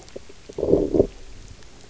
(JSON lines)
{"label": "biophony, low growl", "recorder": "SoundTrap 300"}